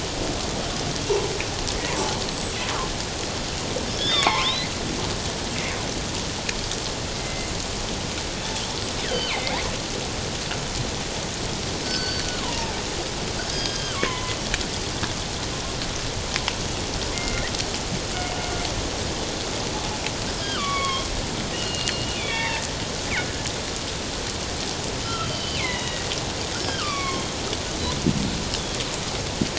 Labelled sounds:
1.3	1.6	killer whale, northern resident, G clan, 7.8 to 8.0 kHz
2.1	2.6	killer whale, northern resident, G clan, 7.6 to 8.0 kHz
4.0	4.7	killer whale, northern resident, G clan, 0.78 to 5.5 kHz
7.1	7.5	killer whale, northern resident, G clan, 2.0 to 2.2 kHz
9.1	9.6	killer whale, northern resident, G clan, 2.0 to 3.4 kHz
11.8	12.8	killer whale, northern resident, G clan, 0.78 to 4.7 kHz
13.5	14.3	killer whale, northern resident, G clan, 0.94 to 4.9 kHz
17.1	17.5	killer whale, northern resident, G clan, 2.0 to 2.2 kHz
20.4	21.1	killer whale, northern resident, G clan, 1.0 to 3.6 kHz
21.5	22.7	killer whale, northern resident, G clan, 0.84 to 3.7 kHz
25.0	27.3	killer whale, northern resident, G clan, 1.0 to 4.8 kHz

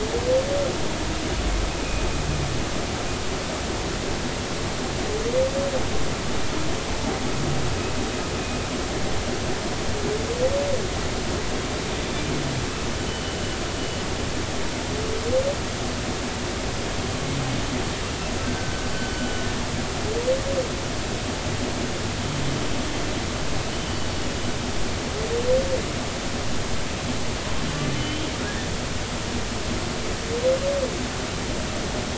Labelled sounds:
12.9	13.4	humpback whale, 2.8 to 3.1 kHz
18.4	19.4	humpback whale, 1.5 to 3.0 kHz
23.7	24.0	humpback whale, 2.9 to 3.1 kHz
28.0	28.3	humpback whale, 2.9 to 3.3 kHz

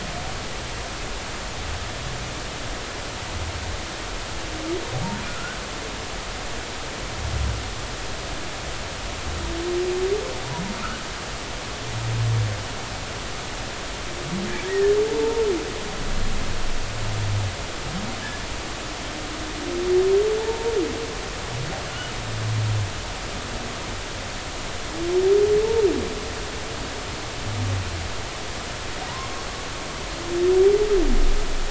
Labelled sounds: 5.3	5.6	humpback whale, 1.2 to 1.6 kHz
14.7	15.4	humpback whale, 0.83 to 2.0 kHz
18.2	18.5	humpback whale, 1.6 to 1.8 kHz
20.4	20.7	humpback whale, 0.83 to 0.96 kHz

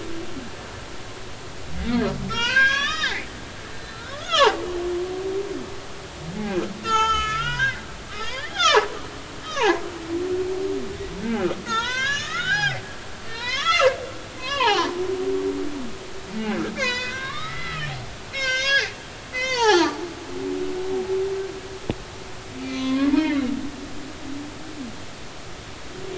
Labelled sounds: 1.8	3.3	humpback whale, 0.86 to 7.0 kHz
3.7	4.6	humpback whale, 0.80 to 4.1 kHz
6.8	9.0	humpback whale, 0.80 to 6.8 kHz
9.4	9.8	humpback whale, 0.80 to 3.9 kHz
11.2	14.0	humpback whale, 0.80 to 7.1 kHz
14.4	15.0	humpback whale, 0.80 to 4.2 kHz
16.8	17.9	humpback whale, 0.90 to 8.0 kHz
18.3	20.0	humpback whale, 0.80 to 6.7 kHz
22.6	23.4	humpback whale, 0.99 to 4.3 kHz

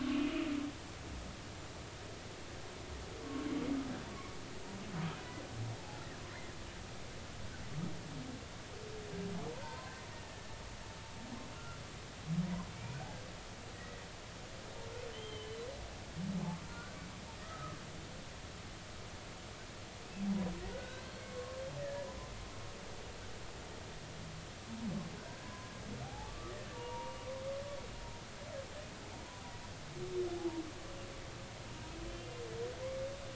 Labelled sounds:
0.2	0.4	humpback whale, 2.8 to 3.0 kHz
3.2	3.5	humpback whale, 1.1 to 1.2 kHz
9.6	10.0	humpback whale, 0.86 to 1.1 kHz
10.2	10.6	humpback whale, 1.7 to 1.8 kHz
11.5	11.8	humpback whale, 1.3 to 1.4 kHz
12.7	13.0	humpback whale, 2.2 to 2.5 kHz
13.8	14.0	humpback whale, 1.8 to 2.0 kHz
15.1	15.6	humpback whale, 2.9 to 3.3 kHz
16.4	17.0	humpback whale, 1.0 to 1.6 kHz
17.4	17.8	humpback whale, 1.2 to 1.3 kHz
20.6	22.1	humpback whale, 1.0 to 2.1 kHz
25.3	27.2	humpback whale, 0.80 to 1.9 kHz
32.1	32.4	humpback whale, 2.7 to 2.8 kHz

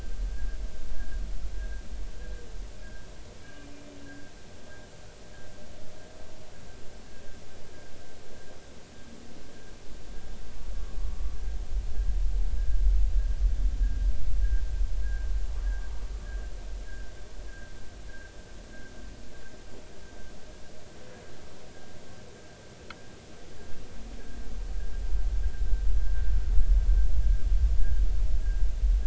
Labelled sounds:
1.6	1.8	humpback whale, 1.6 to 1.7 kHz
13.8	14.1	humpback whale, 1.6 to 1.7 kHz
15.0	15.3	humpback whale, 1.5 to 1.7 kHz
16.9	17.1	humpback whale, 1.5 to 1.8 kHz

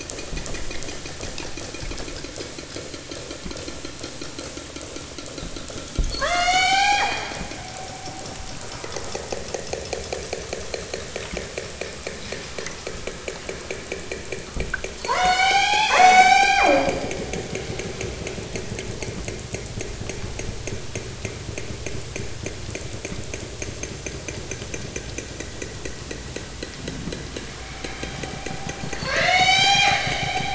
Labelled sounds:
6.0	7.4	killer whale, southern Alaska resident, 0.41 to 8.0 kHz
14.9	17.0	killer whale, southern Alaska resident, 0.37 to 8.0 kHz
27.6	30.1	killer whale, southern Alaska resident, 0.37 to 8.0 kHz

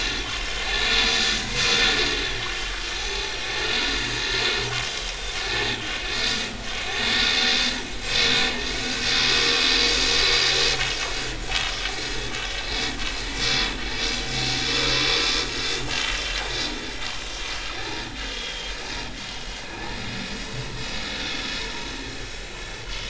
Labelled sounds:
3.1	3.3	vessel noise, 0.80 to 0.90 kHz
4.1	4.4	vessel noise, 6.4 to 6.6 kHz
11.9	12.2	vessel noise, 6.6 to 6.8 kHz
15.1	16.0	vessel noise, 2.7 to 5.2 kHz
16.3	16.5	vessel noise, 4.7 to 4.9 kHz
17.7	18.0	vessel noise, 5.5 to 6.5 kHz
18.3	19.6	vessel noise, 2.8 to 3.4 kHz
20.9	21.2	vessel noise, 6.7 to 6.8 kHz
21.7	23.0	vessel noise, 1.4 to 6.4 kHz

